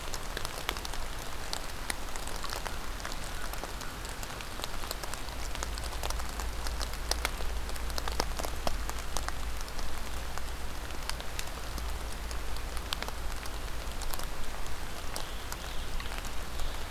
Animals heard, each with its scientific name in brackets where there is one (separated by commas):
Scarlet Tanager (Piranga olivacea), American Crow (Corvus brachyrhynchos)